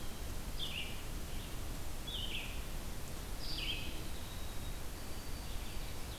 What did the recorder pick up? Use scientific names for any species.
Contopus virens, Vireo olivaceus, Zonotrichia albicollis